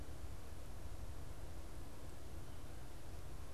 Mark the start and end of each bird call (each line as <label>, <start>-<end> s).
Canada Goose (Branta canadensis), 1.0-3.5 s